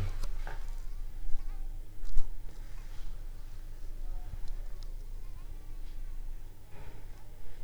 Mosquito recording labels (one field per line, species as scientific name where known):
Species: Anopheles squamosus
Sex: female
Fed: unfed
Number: one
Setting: cup